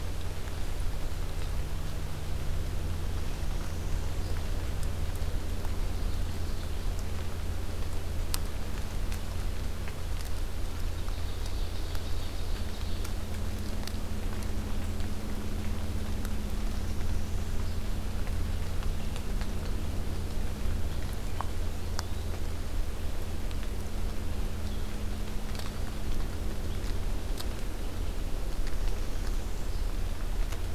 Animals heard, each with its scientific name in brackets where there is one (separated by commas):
Northern Parula (Setophaga americana), Ovenbird (Seiurus aurocapilla)